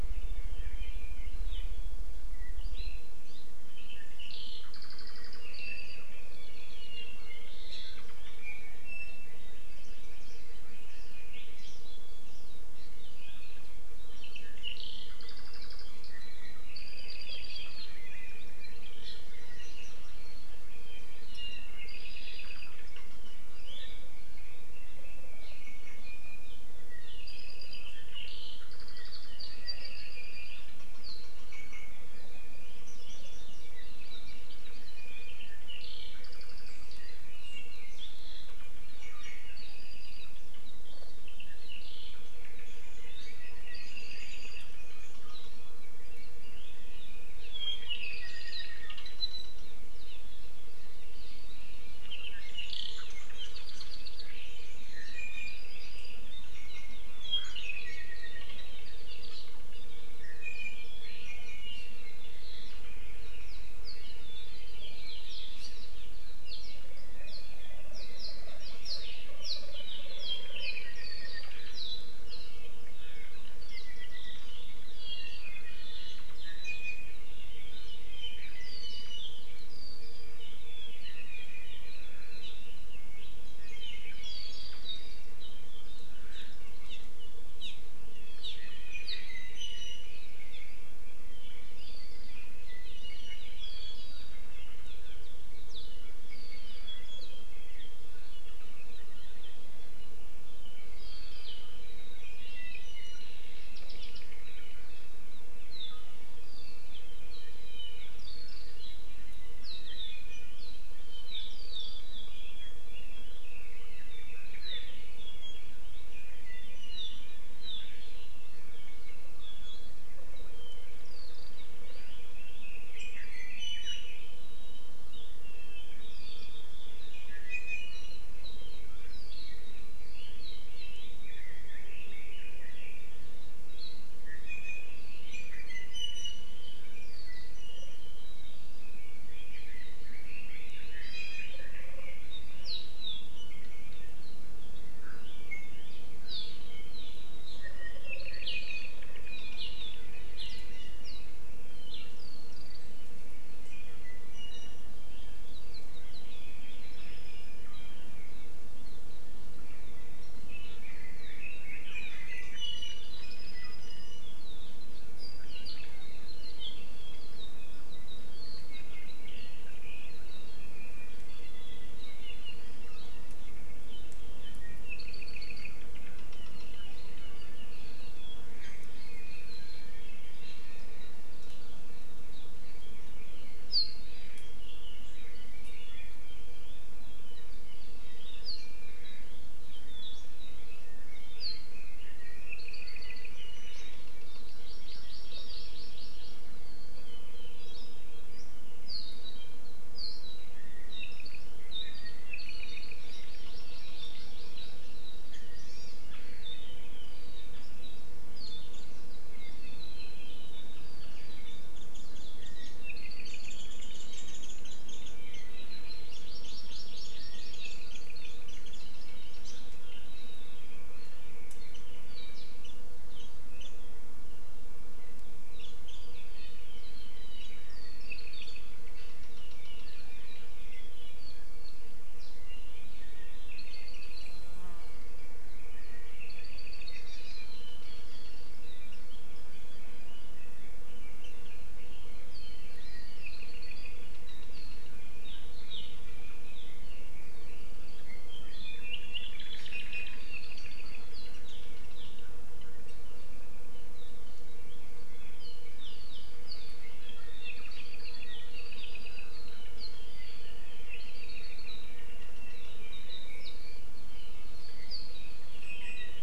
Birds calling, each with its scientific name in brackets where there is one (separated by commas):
Warbling White-eye (Zosterops japonicus), Apapane (Himatione sanguinea), Iiwi (Drepanis coccinea), Red-billed Leiothrix (Leiothrix lutea), Hawaii Amakihi (Chlorodrepanis virens)